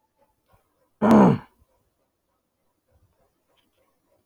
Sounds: Throat clearing